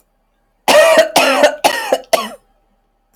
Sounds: Cough